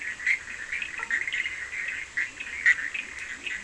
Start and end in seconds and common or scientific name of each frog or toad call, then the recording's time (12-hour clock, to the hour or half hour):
0.0	3.6	Bischoff's tree frog
0.0	3.6	Cochran's lime tree frog
0.7	3.6	Leptodactylus latrans
1.0	1.1	blacksmith tree frog
~2am